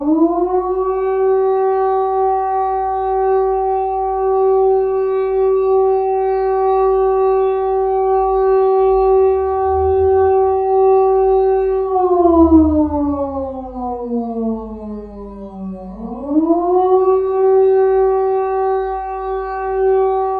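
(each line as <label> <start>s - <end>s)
A siren sound gradually increases in volume. 0.0s - 0.7s
A siren alarm sounds continuously. 0.7s - 11.9s
A siren alarm fades out. 11.9s - 16.0s
A siren alarm gradually increases in volume. 16.0s - 17.4s
A siren alarm sounds continuously. 17.4s - 20.4s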